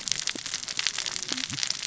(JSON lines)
{"label": "biophony, cascading saw", "recorder": "SoundTrap 600 or HydroMoth"}